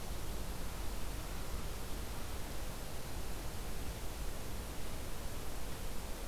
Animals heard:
forest ambience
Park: Acadia National Park